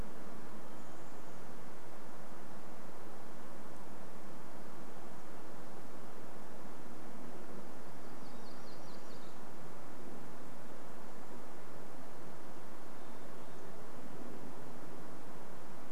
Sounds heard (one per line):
Hermit Thrush song
Chestnut-backed Chickadee call
MacGillivray's Warbler song